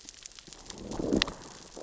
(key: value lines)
label: biophony, growl
recorder: SoundTrap 600 or HydroMoth